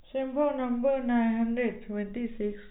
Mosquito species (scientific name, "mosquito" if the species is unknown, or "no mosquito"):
no mosquito